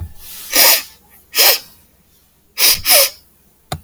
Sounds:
Sniff